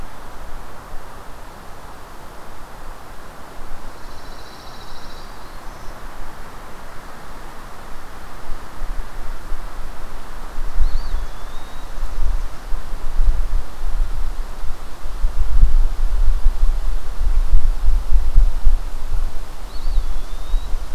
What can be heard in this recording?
Pine Warbler, Black-throated Green Warbler, Eastern Wood-Pewee